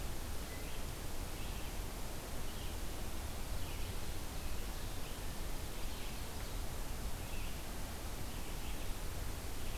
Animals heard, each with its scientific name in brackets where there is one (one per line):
Red-eyed Vireo (Vireo olivaceus)